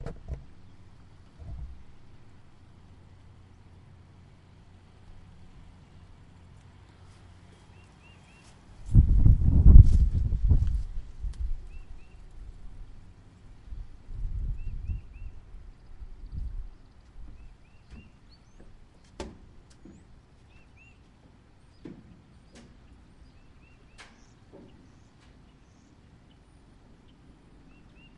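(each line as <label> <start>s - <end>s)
Wind blowing. 8.9s - 11.6s
Birds chirping with wind in the background. 14.0s - 15.2s
Footsteps with a windy background. 18.7s - 26.1s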